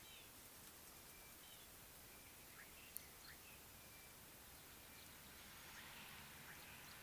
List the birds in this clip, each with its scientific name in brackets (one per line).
Red-fronted Barbet (Tricholaema diademata)
Sulphur-breasted Bushshrike (Telophorus sulfureopectus)